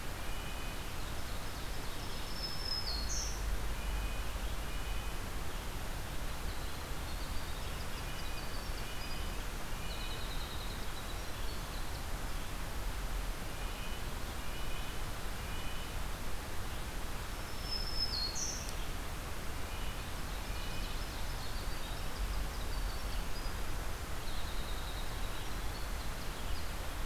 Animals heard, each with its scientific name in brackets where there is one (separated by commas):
Winter Wren (Troglodytes hiemalis), Ovenbird (Seiurus aurocapilla), Red-breasted Nuthatch (Sitta canadensis), Black-throated Green Warbler (Setophaga virens)